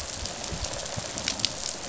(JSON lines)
{"label": "biophony, rattle response", "recorder": "SoundTrap 500"}